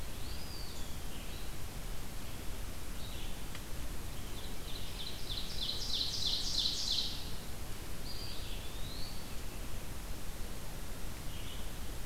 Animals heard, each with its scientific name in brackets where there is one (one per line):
Eastern Wood-Pewee (Contopus virens)
Ovenbird (Seiurus aurocapilla)
Red-eyed Vireo (Vireo olivaceus)